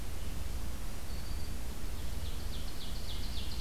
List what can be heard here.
Black-throated Green Warbler, Ovenbird